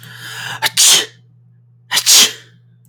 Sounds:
Sneeze